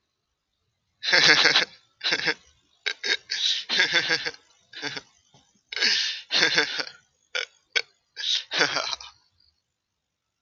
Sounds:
Laughter